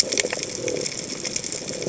{"label": "biophony", "recorder": "HydroMoth"}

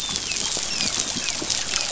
{"label": "biophony, dolphin", "recorder": "SoundTrap 500"}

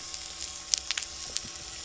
{"label": "anthrophony, boat engine", "recorder": "SoundTrap 300"}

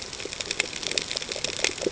{"label": "ambient", "recorder": "HydroMoth"}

